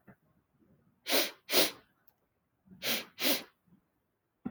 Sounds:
Sniff